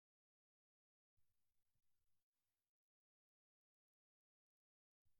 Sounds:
Cough